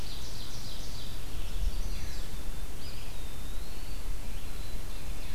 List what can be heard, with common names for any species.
Ovenbird, Red-eyed Vireo, Chestnut-sided Warbler, Eastern Wood-Pewee, Black-capped Chickadee